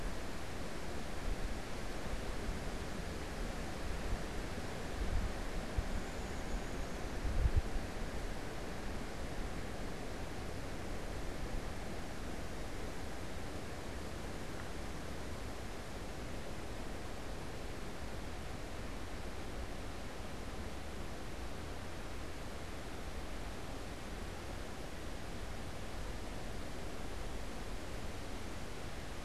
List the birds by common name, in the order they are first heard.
Downy Woodpecker